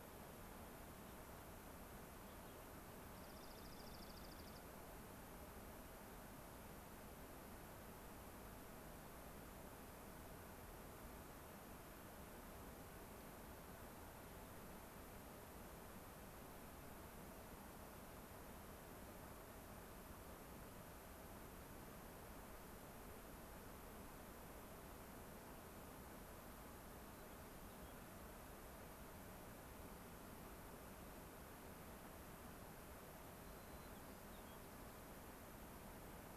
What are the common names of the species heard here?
Gray-crowned Rosy-Finch, Dark-eyed Junco, White-crowned Sparrow